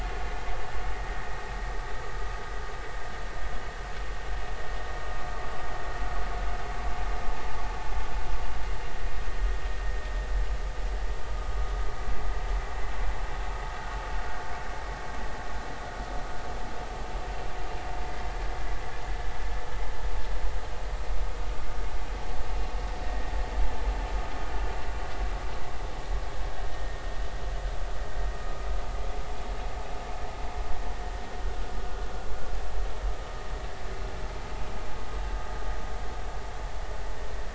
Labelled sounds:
23.0	23.3	vessel noise, 1.8 to 1.9 kHz
26.7	27.0	vessel noise, 1.8 to 1.9 kHz

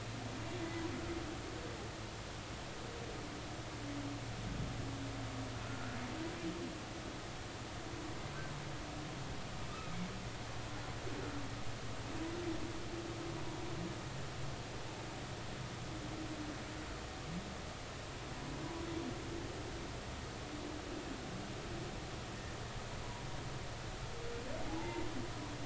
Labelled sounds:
5.7	6.0	humpback whale, 1.3 to 1.5 kHz
9.7	10.0	humpback whale, 1.2 to 1.3 kHz
24.7	25.0	humpback whale, 0.80 to 1.1 kHz

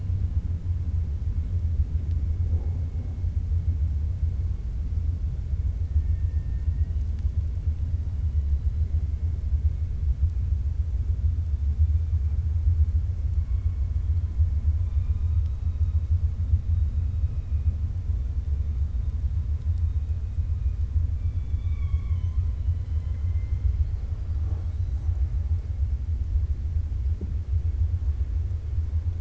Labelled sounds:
6.1	7.0	killer whale, 1.5 to 2.8 kHz
21.1	23.7	killer whale, 1.0 to 4.0 kHz

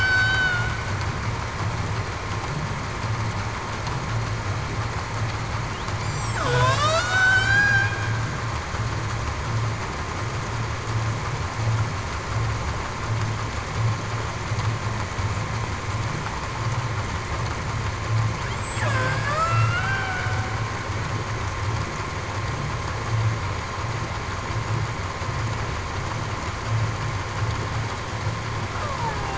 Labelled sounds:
6.0	7.6	killer whale, Bigg's (transient), 1.4 to 8.0 kHz
18.8	19.3	killer whale, Bigg's (transient), 1.5 to 1.8 kHz
19.7	20.4	killer whale, Bigg's (transient), 0.70 to 1.6 kHz

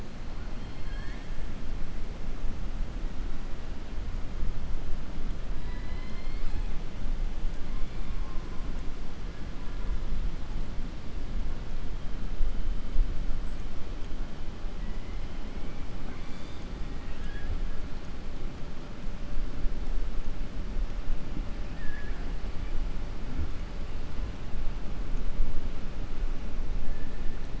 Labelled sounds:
0.6	1.3	killer whale, southern resident, 1.1 to 4.4 kHz
5.5	6.7	killer whale, southern resident, 0.99 to 5.3 kHz
14.8	15.2	killer whale, southern resident, 1.0 to 3.0 kHz
16.9	17.5	killer whale, southern resident, 1.3 to 3.4 kHz
21.6	22.3	killer whale, southern resident, 0.70 to 2.6 kHz

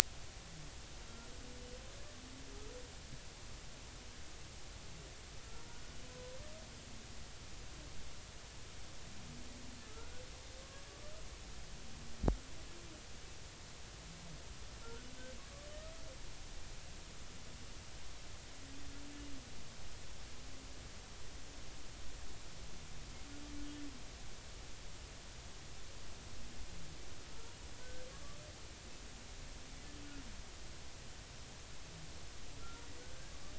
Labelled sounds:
5.4	5.8	humpback whale, 0.90 to 1.4 kHz
6.1	6.4	humpback whale, 0.93 to 1.1 kHz
9.8	10.9	humpback whale, 1.1 to 1.5 kHz
14.8	15.1	humpback whale, 1.3 to 1.6 kHz
27.8	28.1	humpback whale, 1.5 to 1.6 kHz

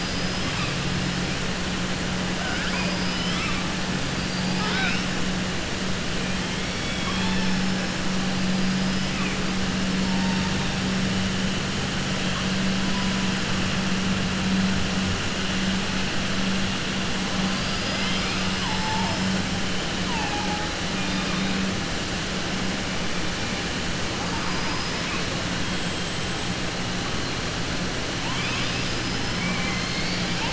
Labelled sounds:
2.5	3.0	killer whale, southern resident, 0.58 to 3.2 kHz
4.2	5.0	killer whale, southern resident, 0.49 to 5.6 kHz
20.9	21.5	killer whale, southern resident, 3.2 to 4.1 kHz
24.4	25.0	killer whale, southern resident, 4.8 to 5.2 kHz

